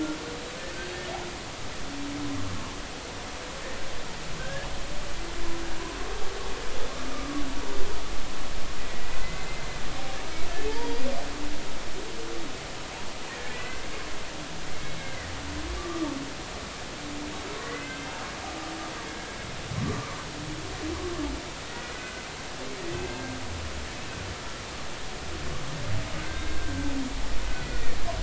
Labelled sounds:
4.4	4.7	humpback whale, 1.5 to 1.8 kHz
7.1	7.4	humpback whale, 1.1 to 1.3 kHz
9.2	9.6	humpback whale, 2.0 to 2.1 kHz
10.7	11.0	humpback whale, 0.83 to 0.99 kHz
13.5	13.8	humpback whale, 1.9 to 2.1 kHz
14.7	16.1	humpback whale, 1.1 to 2.2 kHz
17.6	18.0	humpback whale, 1.4 to 2.1 kHz
19.8	20.2	humpback whale, 0.96 to 1.2 kHz
21.9	22.2	humpback whale, 1.4 to 1.6 kHz
22.9	23.4	humpback whale, 1.5 to 1.7 kHz
26.2	26.7	humpback whale, 1.5 to 1.6 kHz
27.6	28.0	humpback whale, 1.8 to 2.0 kHz

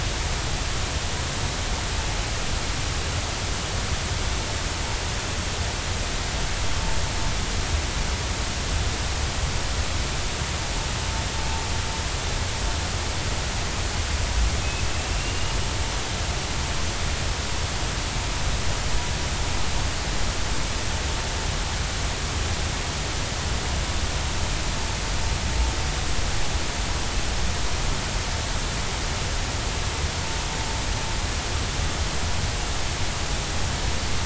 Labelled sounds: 14.9	15.6	killer whale, 2.6 to 2.9 kHz

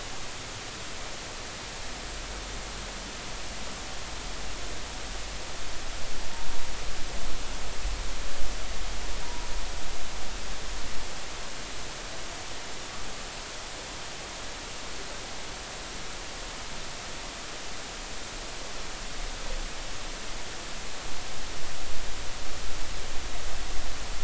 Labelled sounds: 9.2	9.5	humpback whale, 0.90 to 1.1 kHz

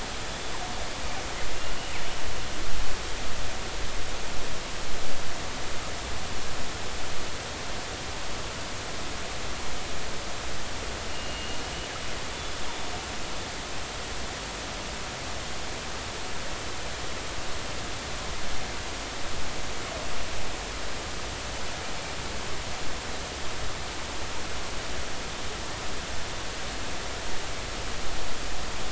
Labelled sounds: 11.1	11.6	killer whale, northern resident, G clan, 2.7 to 3.0 kHz

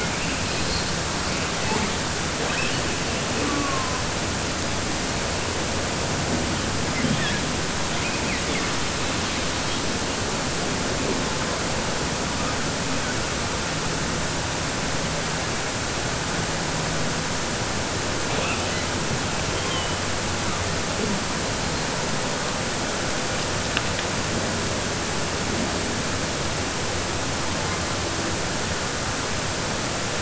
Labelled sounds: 2.4	2.8	killer whale, southern resident, 0.79 to 3.9 kHz
7.9	8.7	killer whale, southern resident, 1.2 to 3.6 kHz

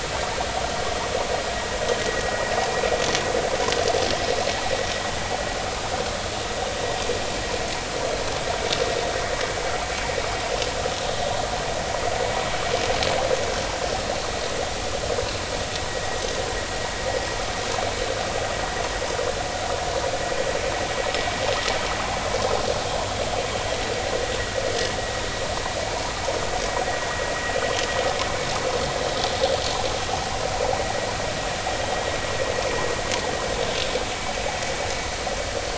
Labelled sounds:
2.7	2.9	vessel noise, 2.4 to 2.5 kHz

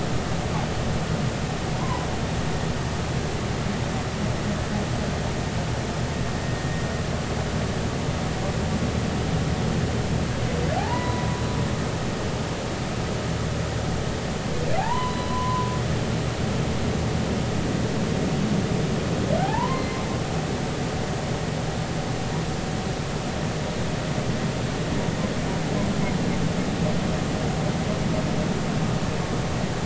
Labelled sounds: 1.8	2.1	humpback whale, 0.80 to 1.1 kHz
10.8	11.4	humpback whale, 0.80 to 1.1 kHz
14.8	15.7	humpback whale, 0.80 to 4.1 kHz
19.4	20.0	humpback whale, 0.80 to 4.3 kHz

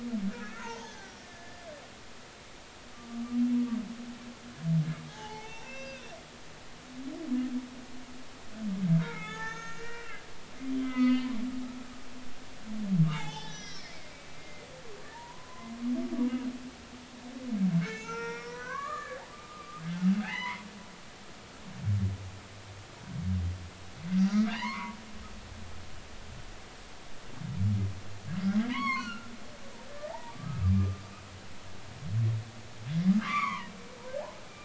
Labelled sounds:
0.2	1.7	humpback whale, 0.80 to 6.6 kHz
5.1	6.1	humpback whale, 0.80 to 6.3 kHz
9.0	10.2	humpback whale, 0.80 to 6.5 kHz
10.8	11.4	humpback whale, 0.96 to 4.7 kHz
13.1	13.9	humpback whale, 0.80 to 6.0 kHz
14.4	15.8	humpback whale, 0.86 to 2.2 kHz
17.8	20.6	humpback whale, 0.80 to 6.3 kHz
24.1	25.0	humpback whale, 0.83 to 4.9 kHz
28.7	29.3	humpback whale, 0.93 to 6.7 kHz
30.1	31.0	humpback whale, 0.80 to 1.3 kHz
33.1	33.7	humpback whale, 0.90 to 4.7 kHz

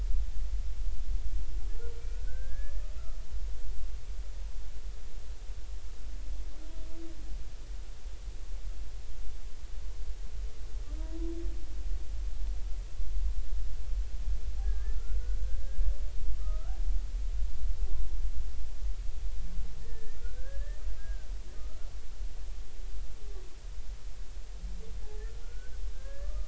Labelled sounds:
2.2	2.7	humpback whale, 1.4 to 1.8 kHz
14.6	15.2	humpback whale, 1.3 to 1.8 kHz
15.6	16.8	humpback whale, 1.2 to 1.7 kHz
19.8	21.3	humpback whale, 1.3 to 2.0 kHz
21.5	21.9	humpback whale, 1.2 to 1.5 kHz
25.4	26.4	humpback whale, 1.1 to 1.8 kHz

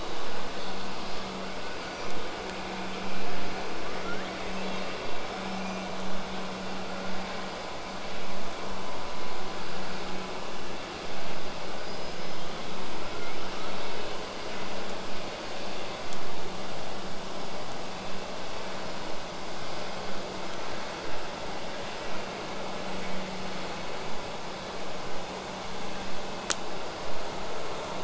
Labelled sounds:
4.0	4.9	killer whale, southern resident, L pod, call S02iii, 1.1 to 8.0 kHz
5.2	6.0	killer whale, southern resident, 2.1 to 8.0 kHz
11.8	12.5	killer whale, southern resident, 4.7 to 8.0 kHz
23.0	28.0	vessel noise, 0 to 8.0 kHz

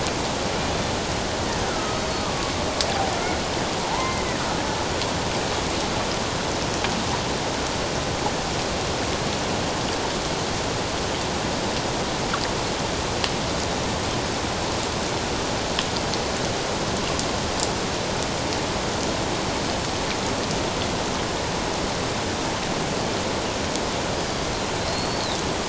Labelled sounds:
1.7	2.5	killer whale, Bigg's (transient), 1.1 to 1.5 kHz
3.8	4.3	killer whale, Bigg's (transient), 0.81 to 2.2 kHz
24.8	25.3	killer whale, Bigg's (transient), 4.0 to 4.6 kHz

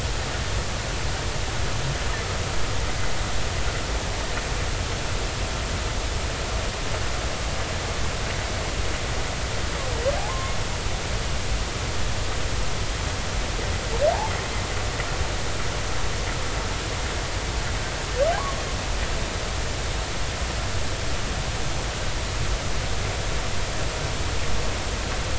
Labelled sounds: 10.2	10.6	humpback whale, 0.80 to 1.1 kHz
18.4	18.6	humpback whale, 0.96 to 1.2 kHz

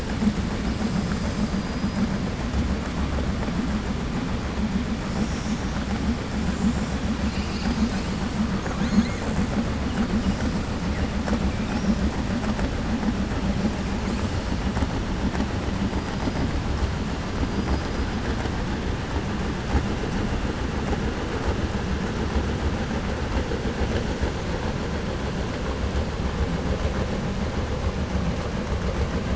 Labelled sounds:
8.5	9.2	killer whale, 0.56 to 4.4 kHz

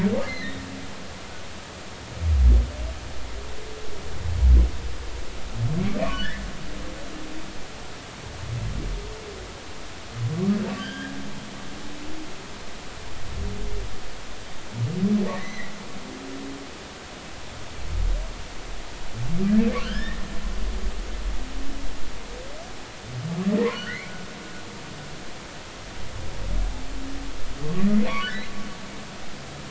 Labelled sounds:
0.3	0.6	humpback whale, 1.7 to 4.2 kHz
6.1	6.4	humpback whale, 1.4 to 2.1 kHz
10.8	11.1	humpback whale, 1.5 to 3.4 kHz
15.4	15.7	humpback whale, 1.7 to 4.1 kHz
19.8	20.2	humpback whale, 1.3 to 5.6 kHz
23.7	24.1	humpback whale, 1.3 to 2.4 kHz
27.6	28.4	humpback whale, 1.0 to 2.6 kHz

